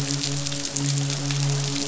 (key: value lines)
label: biophony, midshipman
recorder: SoundTrap 500